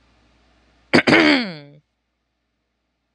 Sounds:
Throat clearing